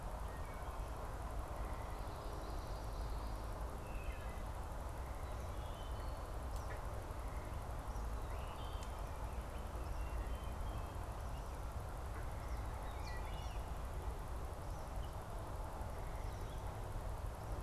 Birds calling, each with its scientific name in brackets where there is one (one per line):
Wood Thrush (Hylocichla mustelina)
Eastern Kingbird (Tyrannus tyrannus)
Common Yellowthroat (Geothlypis trichas)